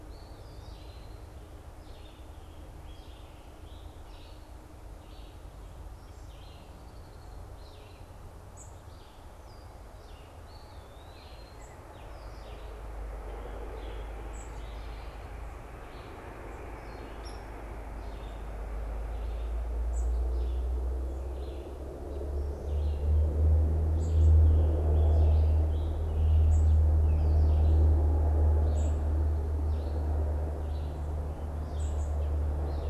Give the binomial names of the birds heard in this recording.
Vireo olivaceus, Contopus virens, unidentified bird, Dryobates villosus